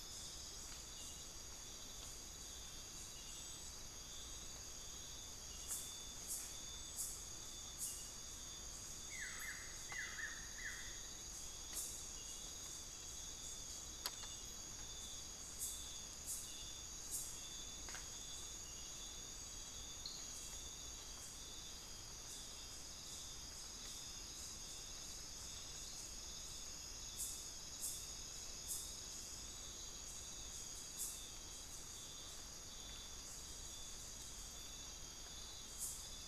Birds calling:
Amazonian Pygmy-Owl (Glaucidium hardyi), Buff-throated Woodcreeper (Xiphorhynchus guttatus)

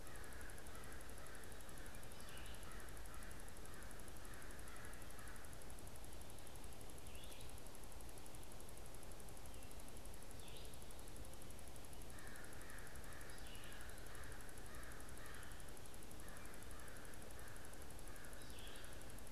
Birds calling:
American Crow (Corvus brachyrhynchos), Red-eyed Vireo (Vireo olivaceus)

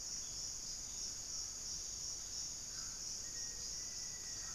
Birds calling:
Buff-breasted Wren (Cantorchilus leucotis), unidentified bird, Black-faced Antthrush (Formicarius analis)

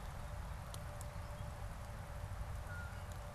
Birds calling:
Blue Jay (Cyanocitta cristata)

